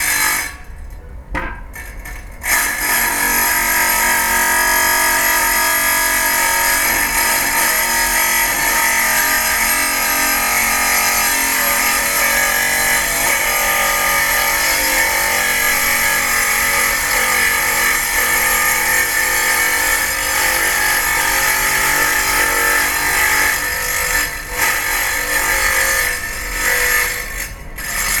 Does this tool need electricity?
yes